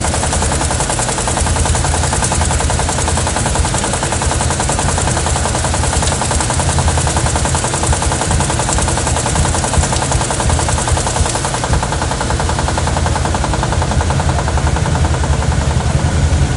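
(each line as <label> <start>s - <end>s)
A washing machine is making loud rhythmic noise. 0.0s - 16.6s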